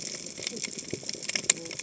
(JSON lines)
{"label": "biophony, cascading saw", "recorder": "HydroMoth"}